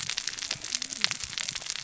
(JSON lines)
{"label": "biophony, cascading saw", "recorder": "SoundTrap 600 or HydroMoth"}